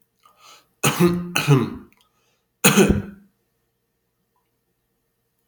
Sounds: Cough